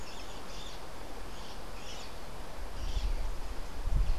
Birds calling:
White-crowned Parrot (Pionus senilis)

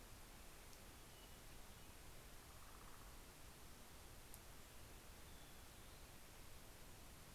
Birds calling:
Black-headed Grosbeak (Pheucticus melanocephalus), Hermit Thrush (Catharus guttatus), Northern Flicker (Colaptes auratus)

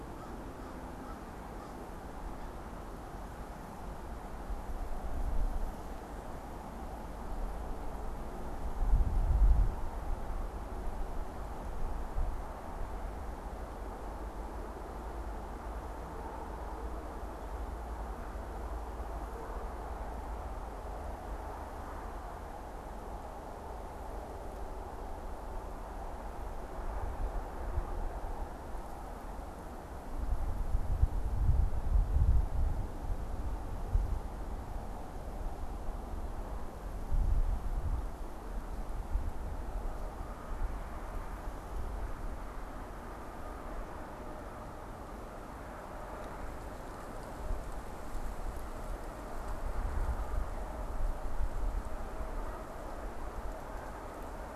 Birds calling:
American Crow (Corvus brachyrhynchos)

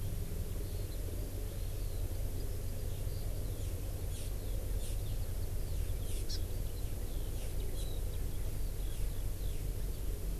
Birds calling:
Hawaii Amakihi (Chlorodrepanis virens), Eurasian Skylark (Alauda arvensis)

